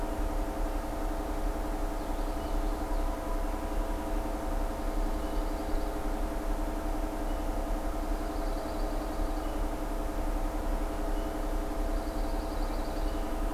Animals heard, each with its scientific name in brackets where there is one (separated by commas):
Pine Warbler (Setophaga pinus), Common Yellowthroat (Geothlypis trichas)